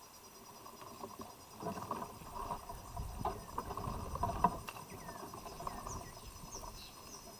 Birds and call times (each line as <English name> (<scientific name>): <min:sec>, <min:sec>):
African Emerald Cuckoo (Chrysococcyx cupreus): 0:05.9